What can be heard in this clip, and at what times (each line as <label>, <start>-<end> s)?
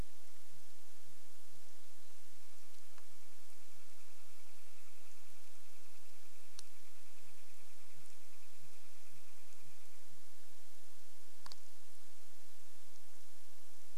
Sooty Grouse song, 0-12 s
Northern Flicker call, 2-10 s